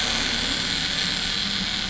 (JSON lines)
{"label": "anthrophony, boat engine", "recorder": "SoundTrap 500"}